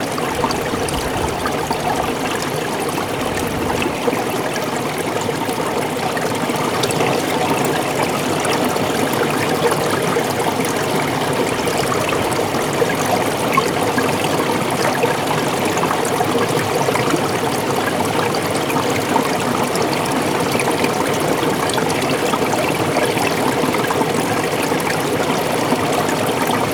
what is flowing?
water